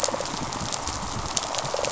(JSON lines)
{"label": "biophony, rattle response", "recorder": "SoundTrap 500"}